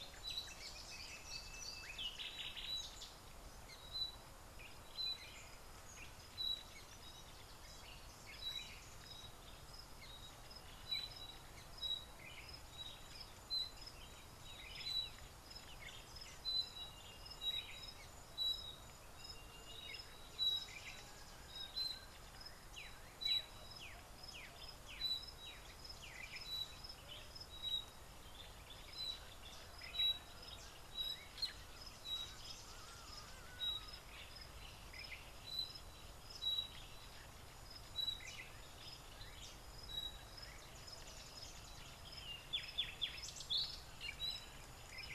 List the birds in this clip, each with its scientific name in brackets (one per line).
Sulphur-breasted Bushshrike (Telophorus sulfureopectus)